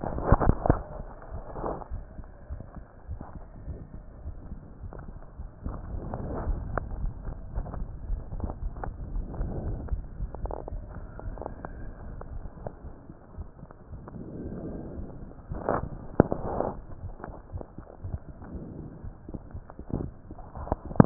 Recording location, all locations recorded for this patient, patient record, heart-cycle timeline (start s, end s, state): aortic valve (AV)
aortic valve (AV)+pulmonary valve (PV)+tricuspid valve (TV)+mitral valve (MV)
#Age: Adolescent
#Sex: Female
#Height: 58.0 cm
#Weight: 51.6 kg
#Pregnancy status: False
#Murmur: Unknown
#Murmur locations: nan
#Most audible location: nan
#Systolic murmur timing: nan
#Systolic murmur shape: nan
#Systolic murmur grading: nan
#Systolic murmur pitch: nan
#Systolic murmur quality: nan
#Diastolic murmur timing: nan
#Diastolic murmur shape: nan
#Diastolic murmur grading: nan
#Diastolic murmur pitch: nan
#Diastolic murmur quality: nan
#Outcome: Abnormal
#Campaign: 2015 screening campaign
0.00	8.60	unannotated
8.60	8.76	S1
8.76	8.85	systole
8.85	8.93	S2
8.93	9.12	diastole
9.12	9.28	S1
9.28	9.38	systole
9.38	9.52	S2
9.52	9.66	diastole
9.66	9.80	S1
9.80	9.88	systole
9.88	10.04	S2
10.04	10.18	diastole
10.18	10.30	S1
10.30	10.40	systole
10.40	10.56	S2
10.56	10.72	diastole
10.72	10.84	S1
10.84	10.96	systole
10.96	11.08	S2
11.08	11.26	diastole
11.26	11.38	S1
11.38	12.84	unannotated
12.84	12.92	S1
12.92	13.08	systole
13.08	13.16	S2
13.16	13.36	diastole
13.36	13.46	S1
13.46	13.61	systole
13.61	13.70	S2
13.70	13.90	diastole
13.90	14.00	S1
14.00	14.14	systole
14.14	14.20	S2
14.20	14.38	diastole
14.38	14.50	S1
14.50	14.64	systole
14.64	14.76	S2
14.76	14.96	diastole
14.96	15.10	S1
15.10	15.20	systole
15.20	15.28	S2
15.28	15.49	diastole
15.49	15.60	S1
15.60	21.06	unannotated